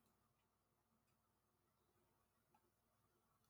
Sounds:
Throat clearing